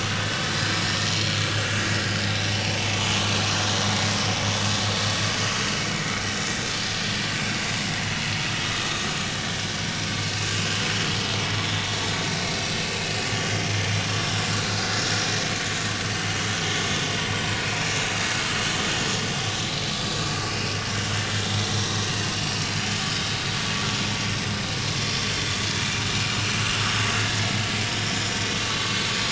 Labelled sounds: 0.2	1.5	vessel noise, 1.3 to 4.2 kHz
2.7	3.2	vessel noise, 0.80 to 1.2 kHz
8.1	8.3	vessel noise, 4.1 to 4.3 kHz
13.0	13.3	vessel noise, 2.4 to 2.6 kHz
17.3	17.5	vessel noise, 2.8 to 3.0 kHz
19.9	20.2	vessel noise, 4.9 to 5.1 kHz
21.7	22.0	vessel noise, 5.6 to 5.8 kHz

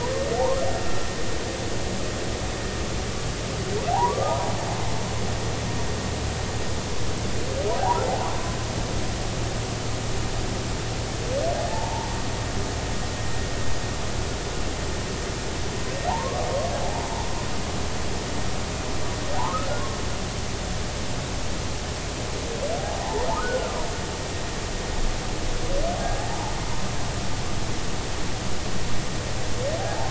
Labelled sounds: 3.9	4.4	humpback whale, 0.80 to 1.3 kHz
8.0	8.3	humpback whale, 0.80 to 1.0 kHz
11.7	12.1	humpback whale, 0.80 to 0.99 kHz
16.1	17.1	humpback whale, 0.80 to 1.2 kHz
23.4	23.7	humpback whale, 1.2 to 1.6 kHz
26.0	26.2	humpback whale, 1.6 to 1.7 kHz
29.8	30.0	humpback whale, 0.80 to 0.93 kHz

